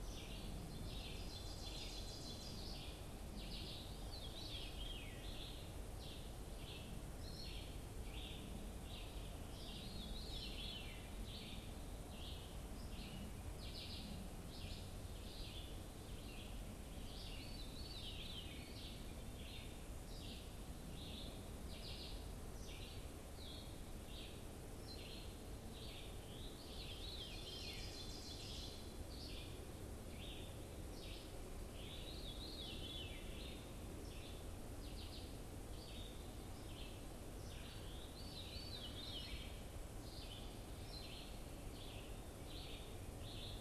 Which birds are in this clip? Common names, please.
Red-eyed Vireo, Ovenbird, Veery